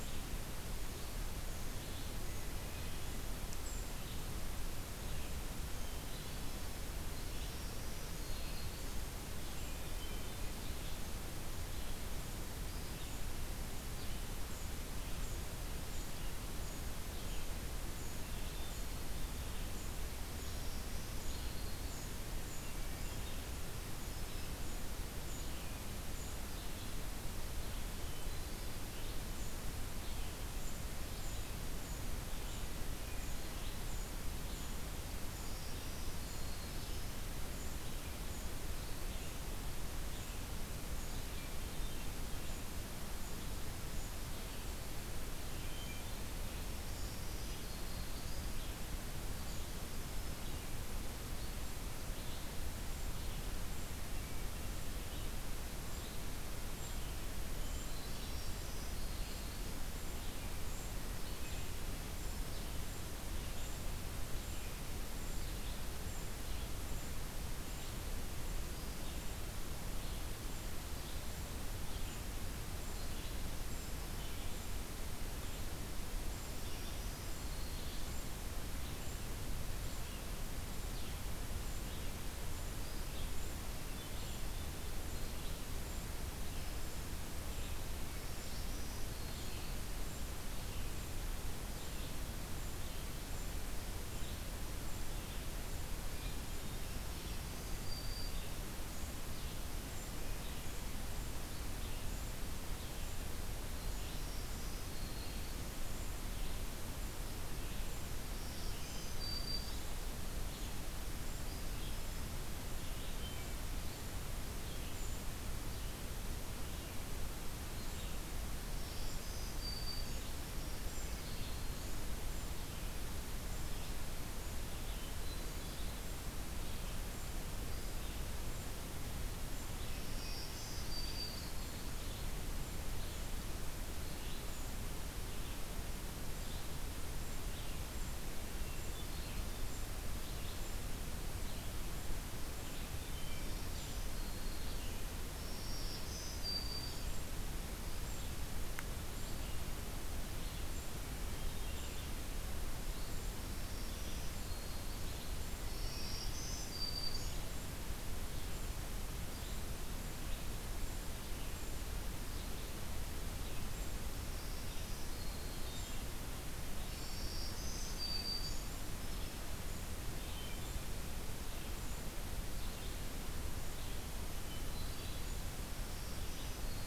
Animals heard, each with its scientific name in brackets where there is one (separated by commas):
Golden-crowned Kinglet (Regulus satrapa), Red-eyed Vireo (Vireo olivaceus), Hermit Thrush (Catharus guttatus), Black-throated Green Warbler (Setophaga virens)